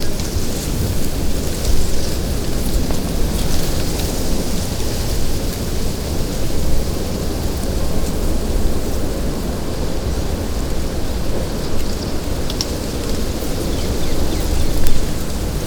Is there a bird around?
yes